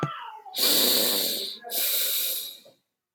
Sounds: Sniff